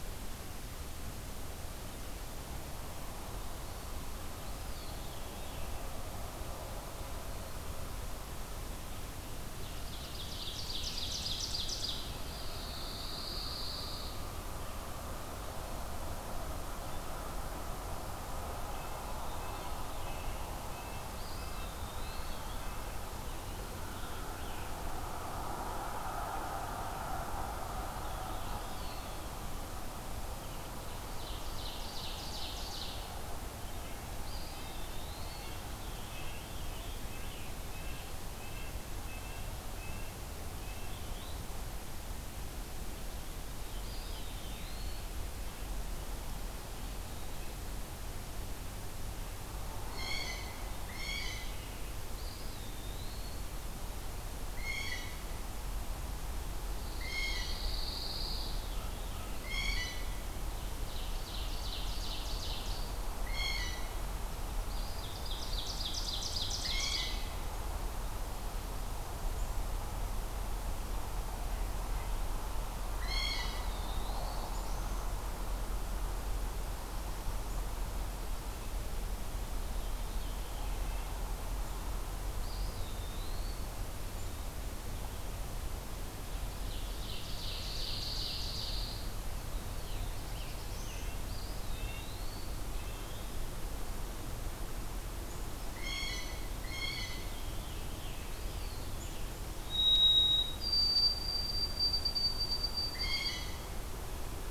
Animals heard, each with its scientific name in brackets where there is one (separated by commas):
Veery (Catharus fuscescens), Rose-breasted Grosbeak (Pheucticus ludovicianus), Red-breasted Nuthatch (Sitta canadensis), Eastern Wood-Pewee (Contopus virens), Blue Jay (Cyanocitta cristata), Scarlet Tanager (Piranga olivacea), White-throated Sparrow (Zonotrichia albicollis), Ovenbird (Seiurus aurocapilla), Common Raven (Corvus corax), Pine Warbler (Setophaga pinus), Black-throated Blue Warbler (Setophaga caerulescens)